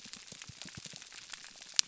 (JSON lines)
{"label": "biophony, pulse", "recorder": "SoundTrap 300"}